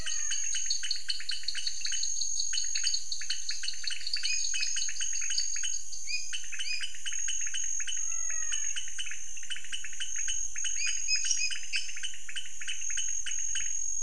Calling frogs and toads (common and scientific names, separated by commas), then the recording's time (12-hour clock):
menwig frog (Physalaemus albonotatus), dwarf tree frog (Dendropsophus nanus), pointedbelly frog (Leptodactylus podicipinus), lesser tree frog (Dendropsophus minutus)
7:00pm